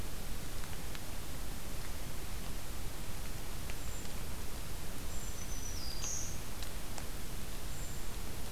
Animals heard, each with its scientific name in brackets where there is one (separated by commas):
Black-throated Green Warbler (Setophaga virens), Brown Creeper (Certhia americana)